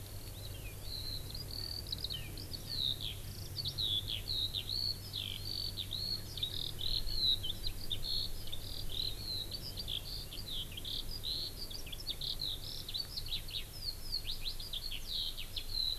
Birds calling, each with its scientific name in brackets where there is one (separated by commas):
Eurasian Skylark (Alauda arvensis)